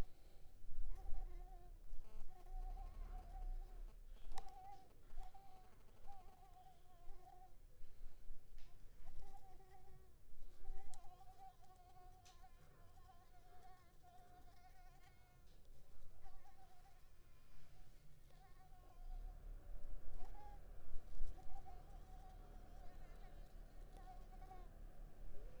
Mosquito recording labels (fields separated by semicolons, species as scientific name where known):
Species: Anopheles coustani; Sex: female; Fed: unfed; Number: one; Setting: cup